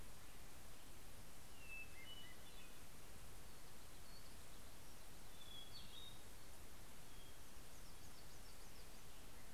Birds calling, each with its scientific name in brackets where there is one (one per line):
Hermit Thrush (Catharus guttatus)
Hermit Warbler (Setophaga occidentalis)